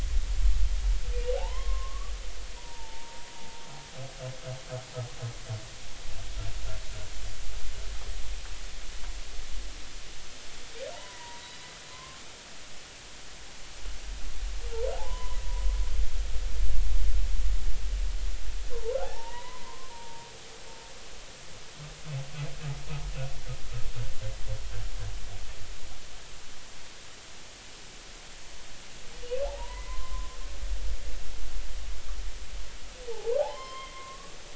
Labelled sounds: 1.4	3.3	humpback whale, 0.80 to 1.3 kHz
10.9	12.2	humpback whale, 0.83 to 4.0 kHz
14.9	15.4	humpback whale, 0.80 to 1.1 kHz
18.7	20.3	humpback whale, 0.80 to 2.0 kHz
29.4	30.3	humpback whale, 0.80 to 2.2 kHz
33.1	34.4	humpback whale, 0.80 to 3.2 kHz

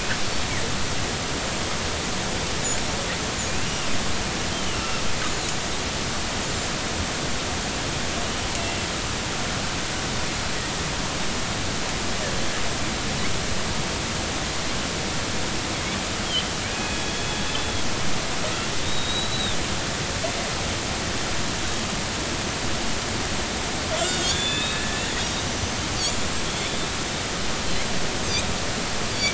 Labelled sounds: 4.7	5.7	killer whale, northern resident, 1.2 to 7.0 kHz
16.2	16.6	killer whale, northern resident, G clan, GG subclan, call N45, 2.9 to 3.3 kHz
16.7	17.8	killer whale, northern resident, 2.4 to 3.5 kHz
18.8	19.6	killer whale, northern resident, 3.4 to 4.0 kHz
24.0	25.0	killer whale, northern resident, G clan, call N40, 1.3 to 7.4 kHz
25.4	26.8	killer whale, northern resident, 5.8 to 8.0 kHz

